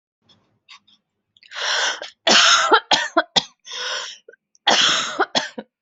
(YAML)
expert_labels:
- quality: good
  cough_type: dry
  dyspnea: false
  wheezing: false
  stridor: false
  choking: false
  congestion: false
  nothing: true
  diagnosis: upper respiratory tract infection
  severity: mild
age: 27
gender: female
respiratory_condition: false
fever_muscle_pain: true
status: symptomatic